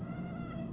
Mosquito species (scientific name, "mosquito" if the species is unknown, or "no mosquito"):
Aedes albopictus